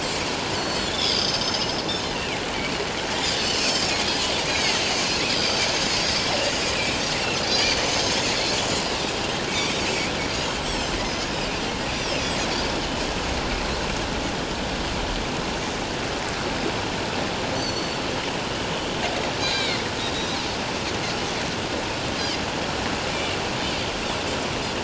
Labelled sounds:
0.5	1.8	Pacific white-sided dolphin, 3.1 to 6.7 kHz
2.1	2.4	Pacific white-sided dolphin, 2.1 to 2.9 kHz
3.5	4.8	Pacific white-sided dolphin, 1.8 to 5.5 kHz
5.3	5.7	Pacific white-sided dolphin, 4.5 to 6.4 kHz
7.5	8.3	Pacific white-sided dolphin, 4.3 to 6.5 kHz
9.5	10.9	Pacific white-sided dolphin, 2.1 to 5.9 kHz
11.9	12.2	Pacific white-sided dolphin, 5.1 to 6.1 kHz
17.5	18.0	Pacific white-sided dolphin, 4.3 to 7.5 kHz
19.4	19.8	Pacific white-sided dolphin, 2.0 to 6.5 kHz
23.1	23.4	Pacific white-sided dolphin, 2.7 to 3.0 kHz

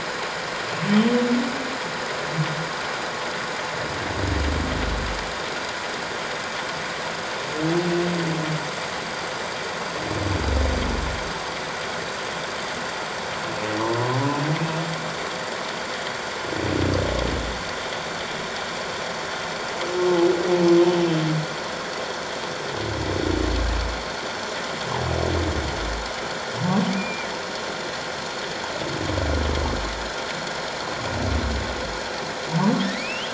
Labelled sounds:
26.9	27.3	humpback whale, 2.2 to 2.5 kHz
32.8	33.3	humpback whale, 1.7 to 3.5 kHz

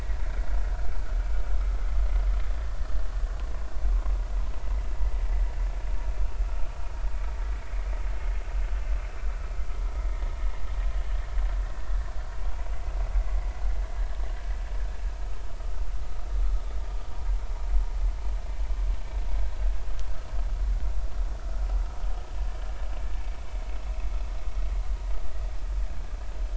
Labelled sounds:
0.3	0.9	vessel noise, 1.3 to 1.6 kHz
15.2	15.4	vessel noise, 1.2 to 1.3 kHz

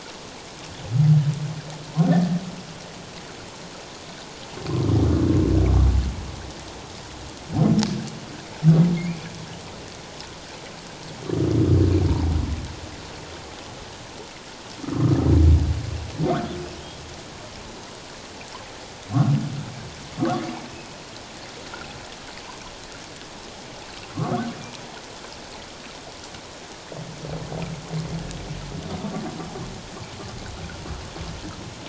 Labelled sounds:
9.0	9.3	humpback whale, 2.0 to 2.5 kHz
14.8	15.2	humpback whale, 1.0 to 1.4 kHz

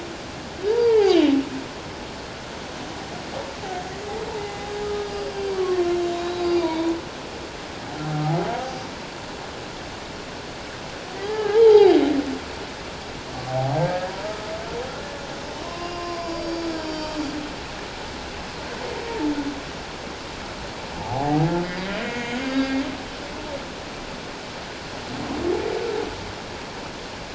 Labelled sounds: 0.7	1.3	humpback whale, 0.78 to 3.3 kHz
4.3	6.9	humpback whale, 0.78 to 5.0 kHz
8.0	8.5	humpback whale, 0.78 to 0.88 kHz
11.2	12.0	humpback whale, 0.78 to 5.0 kHz
13.5	14.1	humpback whale, 0.78 to 1.7 kHz
15.6	17.1	humpback whale, 0.94 to 5.6 kHz
21.0	22.8	humpback whale, 0.78 to 4.9 kHz

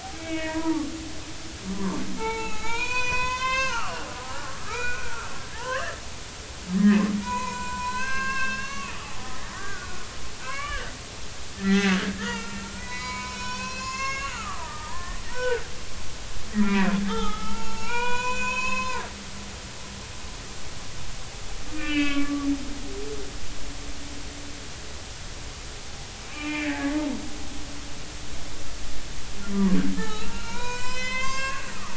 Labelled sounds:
0.1	0.9	humpback whale, 0.83 to 2.9 kHz
1.7	6.0	humpback whale, 0.80 to 7.5 kHz
6.8	10.1	humpback whale, 0.80 to 7.5 kHz
10.4	19.0	humpback whale, 0.80 to 7.2 kHz
21.8	22.5	humpback whale, 1.1 to 4.8 kHz
26.3	26.8	humpback whale, 0.86 to 3.0 kHz
29.5	31.6	humpback whale, 0.80 to 7.7 kHz

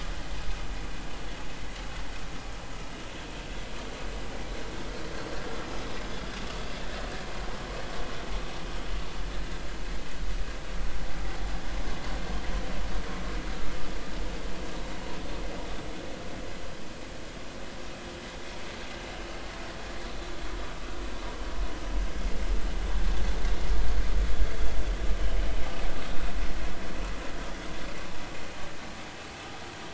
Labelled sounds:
6.1	6.3	vessel noise, 3.3 to 3.6 kHz

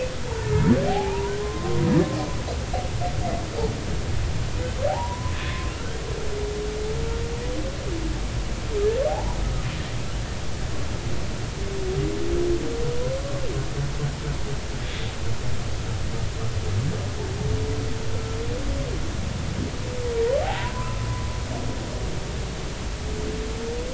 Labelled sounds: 0.9	1.8	humpback whale, 0.80 to 1.1 kHz
4.9	5.7	humpback whale, 0.80 to 1.9 kHz
9.1	9.4	humpback whale, 0.80 to 1.0 kHz
13.1	13.4	humpback whale, 1.0 to 1.2 kHz
20.6	21.1	humpback whale, 0.90 to 1.4 kHz

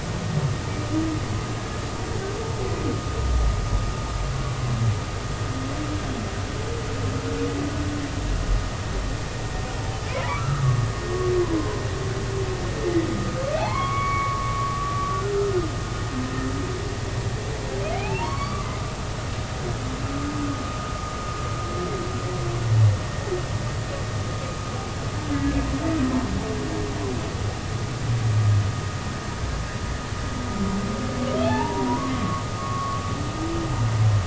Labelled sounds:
10.1	10.7	humpback whale, 0.80 to 1.4 kHz
11.6	11.8	humpback whale, 0.93 to 1.1 kHz
13.6	15.5	humpback whale, 0.80 to 2.3 kHz
17.9	18.7	humpback whale, 0.80 to 4.7 kHz
31.4	33.0	humpback whale, 0.80 to 3.6 kHz

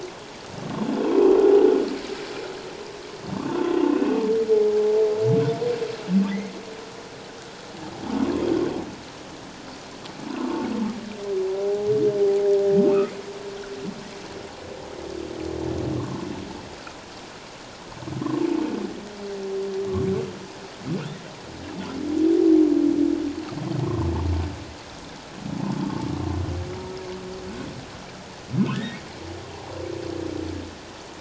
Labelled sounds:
1.0	1.3	humpback whale, 2.5 to 2.7 kHz
3.9	4.2	humpback whale, 2.5 to 2.7 kHz
11.5	11.9	humpback whale, 0.78 to 0.88 kHz
16.0	16.3	humpback whale, 0.88 to 1.2 kHz
28.7	29.0	humpback whale, 1.7 to 2.0 kHz

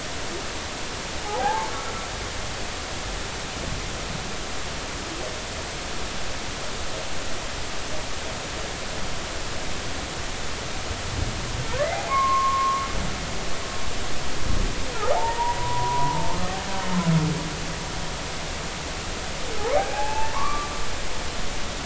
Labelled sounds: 1.2	1.7	humpback whale, 0.80 to 0.99 kHz
12.1	12.9	humpback whale, 0.96 to 1.2 kHz
15.1	16.4	humpback whale, 0.80 to 1.1 kHz
19.7	20.7	humpback whale, 0.80 to 2.7 kHz

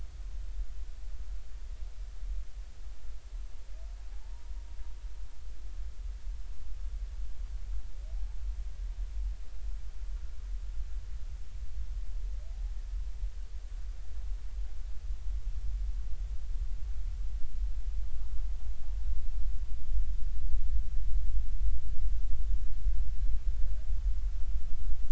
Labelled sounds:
4.1	4.5	humpback whale, 0.80 to 0.99 kHz

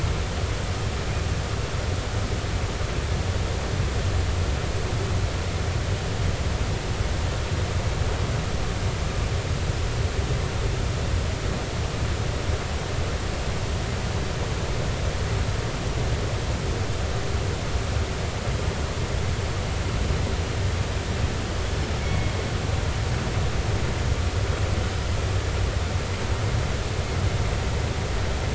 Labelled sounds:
22.0	22.3	killer whale, northern resident, 2.1 to 2.3 kHz

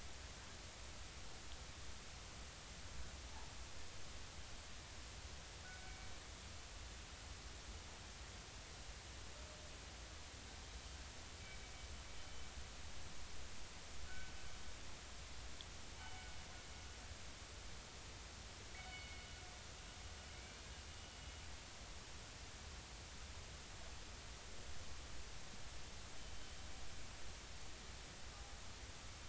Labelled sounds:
5.6	6.1	killer whale, northern resident, 1.4 to 2.3 kHz
14.1	14.3	killer whale, northern resident, 1.4 to 1.6 kHz
16.0	16.4	killer whale, northern resident, 2.2 to 3.1 kHz
18.7	19.3	killer whale, northern resident, 2.1 to 4.6 kHz
20.3	20.7	killer whale, northern resident, 2.1 to 2.5 kHz

